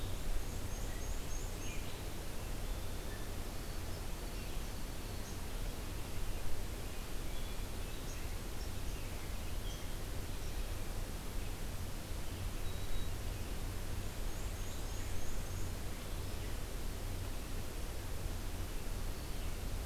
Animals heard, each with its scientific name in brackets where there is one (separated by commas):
White-throated Sparrow (Zonotrichia albicollis), Black-and-white Warbler (Mniotilta varia), Black-throated Green Warbler (Setophaga virens), Red-eyed Vireo (Vireo olivaceus)